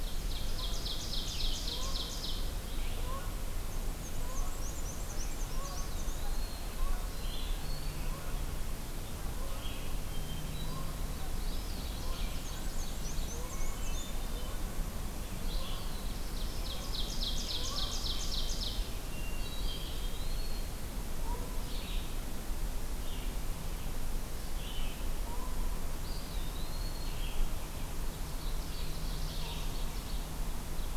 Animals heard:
Ovenbird (Seiurus aurocapilla)
Black-and-white Warbler (Mniotilta varia)
Hermit Thrush (Catharus guttatus)
Canada Goose (Branta canadensis)
Black-throated Blue Warbler (Setophaga caerulescens)
Red-eyed Vireo (Vireo olivaceus)
Eastern Wood-Pewee (Contopus virens)

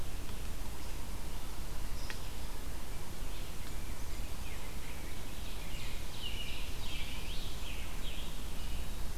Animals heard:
Blackburnian Warbler (Setophaga fusca)
Red-eyed Vireo (Vireo olivaceus)
American Robin (Turdus migratorius)
Ovenbird (Seiurus aurocapilla)
Rose-breasted Grosbeak (Pheucticus ludovicianus)
Yellow-bellied Sapsucker (Sphyrapicus varius)

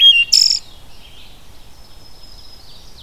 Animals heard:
Ovenbird (Seiurus aurocapilla)
Red-eyed Vireo (Vireo olivaceus)
Black-throated Green Warbler (Setophaga virens)
Wood Thrush (Hylocichla mustelina)

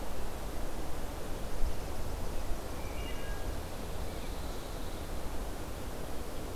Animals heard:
Wood Thrush (Hylocichla mustelina)
Pine Warbler (Setophaga pinus)

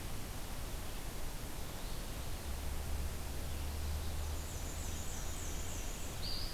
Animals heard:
Black-and-white Warbler (Mniotilta varia)

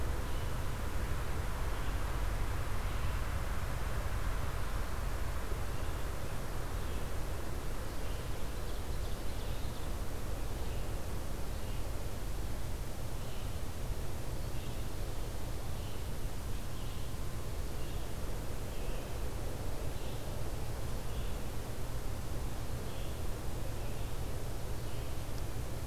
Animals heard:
Ovenbird (Seiurus aurocapilla)
Red-eyed Vireo (Vireo olivaceus)

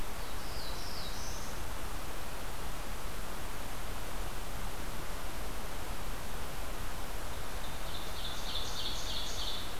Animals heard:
Ovenbird (Seiurus aurocapilla)
Black-throated Blue Warbler (Setophaga caerulescens)

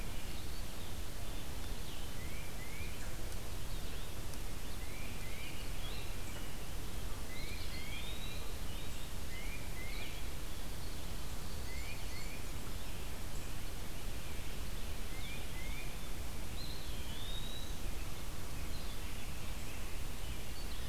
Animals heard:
Blue-headed Vireo (Vireo solitarius)
Eastern Wood-Pewee (Contopus virens)
Tufted Titmouse (Baeolophus bicolor)

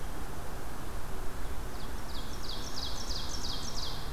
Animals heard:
Ovenbird (Seiurus aurocapilla)

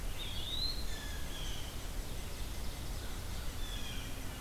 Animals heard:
unidentified call
Eastern Wood-Pewee (Contopus virens)
Blue Jay (Cyanocitta cristata)

